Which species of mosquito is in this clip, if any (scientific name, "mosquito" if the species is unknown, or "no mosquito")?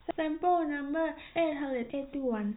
no mosquito